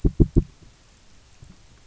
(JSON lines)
{"label": "biophony, knock", "recorder": "SoundTrap 300"}